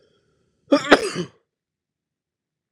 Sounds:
Sneeze